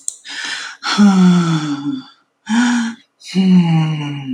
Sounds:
Sigh